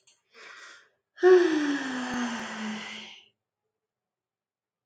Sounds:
Sigh